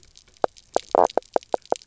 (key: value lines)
label: biophony, knock croak
recorder: SoundTrap 300